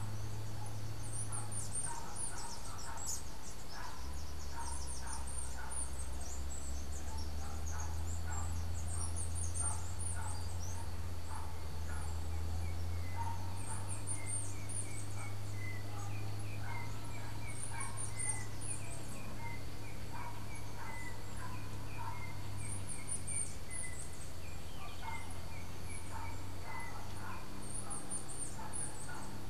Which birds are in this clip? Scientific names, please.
Arremon brunneinucha, Myioborus miniatus, Icterus chrysater